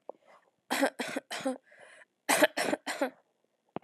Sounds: Cough